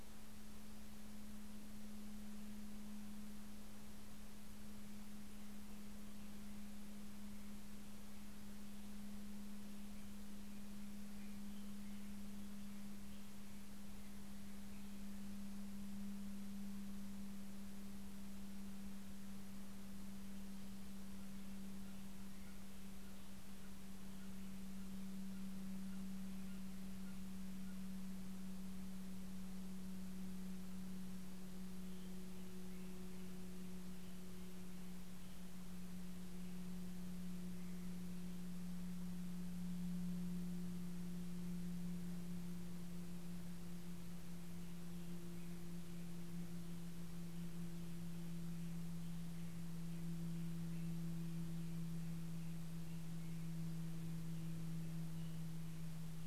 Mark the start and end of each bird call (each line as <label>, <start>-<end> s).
Steller's Jay (Cyanocitta stelleri), 21.0-28.1 s
American Robin (Turdus migratorius), 31.2-37.1 s